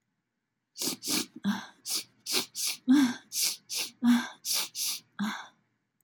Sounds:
Sniff